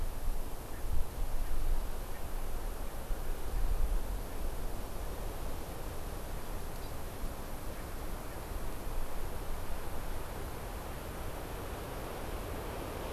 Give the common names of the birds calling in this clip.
Hawaii Amakihi